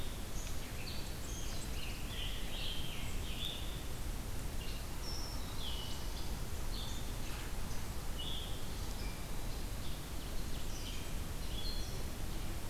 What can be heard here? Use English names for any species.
Red-eyed Vireo, Scarlet Tanager